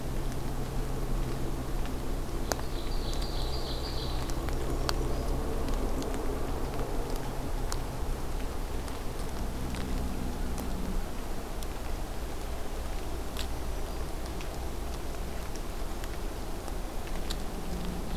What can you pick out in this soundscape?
Ovenbird, Brown Creeper, Black-throated Green Warbler